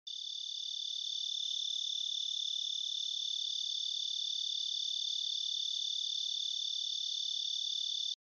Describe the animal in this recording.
Oecanthus quadripunctatus, an orthopteran